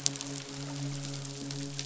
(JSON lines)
{"label": "biophony, midshipman", "recorder": "SoundTrap 500"}